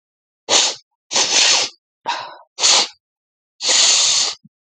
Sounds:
Sniff